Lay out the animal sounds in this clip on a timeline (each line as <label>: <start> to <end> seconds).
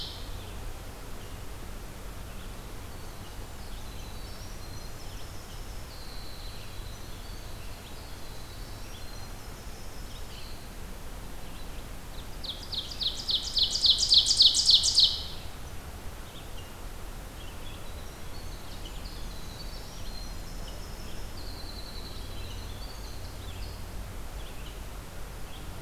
Red-eyed Vireo (Vireo olivaceus): 0.0 to 25.8 seconds
Winter Wren (Troglodytes hiemalis): 2.5 to 10.7 seconds
Ovenbird (Seiurus aurocapilla): 12.0 to 15.5 seconds
Winter Wren (Troglodytes hiemalis): 16.1 to 23.7 seconds